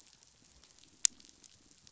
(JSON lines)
{"label": "biophony, croak", "recorder": "SoundTrap 500"}